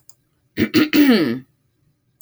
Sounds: Throat clearing